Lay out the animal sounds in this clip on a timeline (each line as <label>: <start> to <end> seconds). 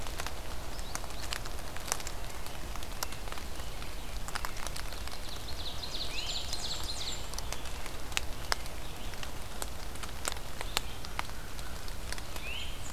American Robin (Turdus migratorius): 2.9 to 4.8 seconds
Ovenbird (Seiurus aurocapilla): 4.8 to 7.4 seconds
Blackburnian Warbler (Setophaga fusca): 5.9 to 7.4 seconds
Great Crested Flycatcher (Myiarchus crinitus): 5.9 to 6.6 seconds
American Robin (Turdus migratorius): 7.2 to 8.8 seconds
Red-eyed Vireo (Vireo olivaceus): 8.6 to 12.9 seconds
Great Crested Flycatcher (Myiarchus crinitus): 12.3 to 12.8 seconds